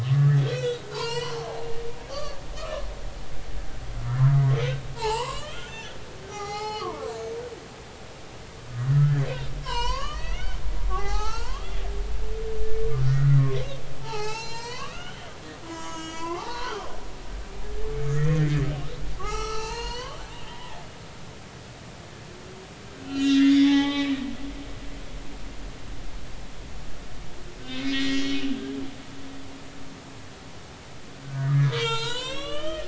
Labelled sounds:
0.0	1.5	humpback whale, 0.83 to 6.0 kHz
2.1	2.8	humpback whale, 0.99 to 4.9 kHz
5.0	6.0	humpback whale, 0.80 to 7.8 kHz
6.3	7.2	humpback whale, 0.80 to 6.0 kHz
8.7	11.8	humpback whale, 0.80 to 6.4 kHz
13.0	13.4	humpback whale, 1.2 to 2.0 kHz
14.0	15.3	humpback whale, 0.80 to 7.7 kHz
15.6	16.9	humpback whale, 0.80 to 7.3 kHz
18.0	18.6	humpback whale, 1.2 to 2.0 kHz
19.2	20.7	humpback whale, 0.80 to 6.8 kHz
23.0	24.2	humpback whale, 0.80 to 5.6 kHz
27.6	28.4	humpback whale, 1.5 to 3.9 kHz
31.2	32.8	humpback whale, 0.83 to 8.0 kHz

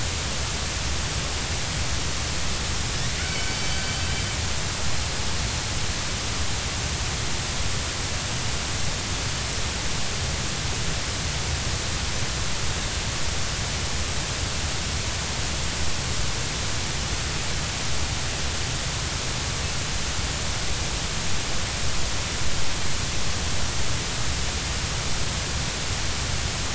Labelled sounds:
3.2	3.9	killer whale, Bigg's (transient), 2.2 to 4.7 kHz

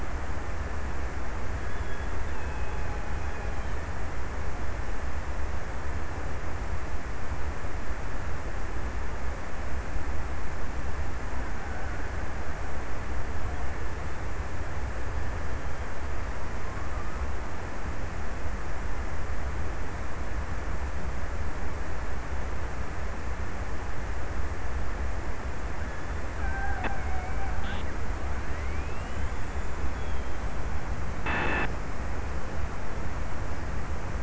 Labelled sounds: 1.0	4.7	killer whale, Bigg's (transient), 0.63 to 1.8 kHz
25.4	28.8	killer whale, Bigg's (transient), 0.60 to 1.8 kHz

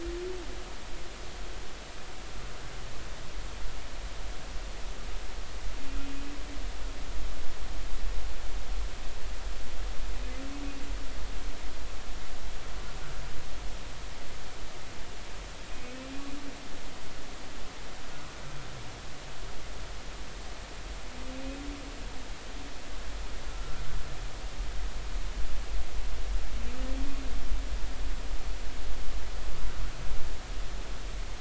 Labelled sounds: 15.7	16.1	humpback whale, 2.4 to 2.7 kHz
23.5	23.8	humpback whale, 1.3 to 1.5 kHz

